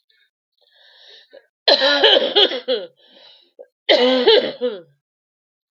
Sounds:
Cough